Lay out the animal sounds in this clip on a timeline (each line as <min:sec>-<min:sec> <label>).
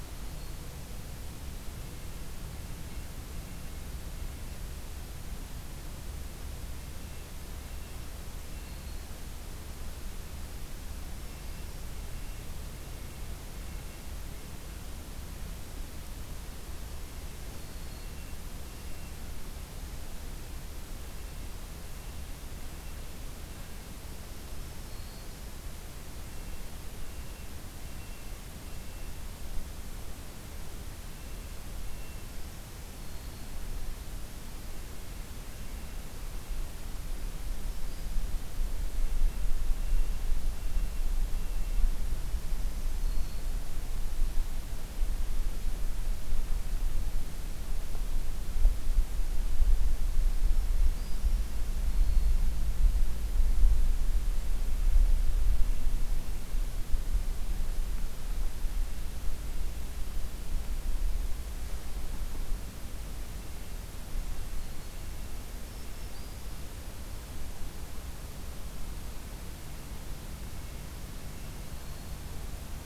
0:01.6-0:04.7 Red-breasted Nuthatch (Sitta canadensis)
0:07.4-0:08.9 Red-breasted Nuthatch (Sitta canadensis)
0:08.5-0:09.2 Black-throated Green Warbler (Setophaga virens)
0:11.1-0:14.2 Red-breasted Nuthatch (Sitta canadensis)
0:16.9-0:19.7 Red-breasted Nuthatch (Sitta canadensis)
0:21.6-0:23.3 Red-breasted Nuthatch (Sitta canadensis)
0:24.2-0:25.5 Black-throated Green Warbler (Setophaga virens)
0:26.0-0:29.3 Red-breasted Nuthatch (Sitta canadensis)
0:30.9-0:32.2 Red-breasted Nuthatch (Sitta canadensis)
0:32.6-0:33.7 Black-throated Green Warbler (Setophaga virens)
0:34.7-0:36.6 Red-breasted Nuthatch (Sitta canadensis)
0:37.4-0:38.4 Black-throated Green Warbler (Setophaga virens)
0:38.8-0:42.0 Red-breasted Nuthatch (Sitta canadensis)
0:42.9-0:43.6 Black-throated Green Warbler (Setophaga virens)
0:50.7-0:52.4 Black-throated Green Warbler (Setophaga virens)
0:56.0-0:56.7 Red-breasted Nuthatch (Sitta canadensis)
1:03.2-1:06.4 Red-breasted Nuthatch (Sitta canadensis)
1:04.3-1:05.1 Black-throated Green Warbler (Setophaga virens)
1:05.5-1:06.5 Black-throated Green Warbler (Setophaga virens)
1:09.4-1:11.8 Red-breasted Nuthatch (Sitta canadensis)
1:11.6-1:12.4 Black-throated Green Warbler (Setophaga virens)